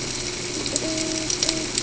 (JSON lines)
{"label": "ambient", "recorder": "HydroMoth"}